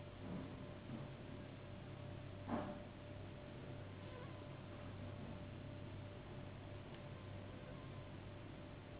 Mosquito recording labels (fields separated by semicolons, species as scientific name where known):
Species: Anopheles gambiae s.s.; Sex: female; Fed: unfed; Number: one; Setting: insect culture